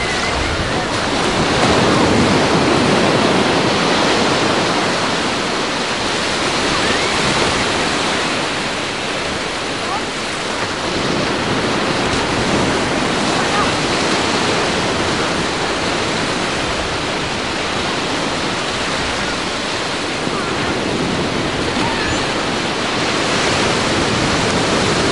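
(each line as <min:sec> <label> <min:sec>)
0:00.0 Noise. 0:25.1
0:00.0 Ocean waves. 0:25.1
0:00.0 Waves crashing. 0:25.1
0:00.0 Wind blowing. 0:25.1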